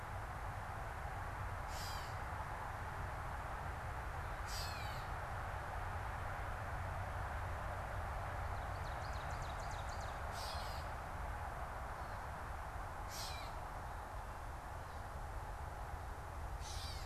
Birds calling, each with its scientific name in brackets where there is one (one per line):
Ovenbird (Seiurus aurocapilla)
Gray Catbird (Dumetella carolinensis)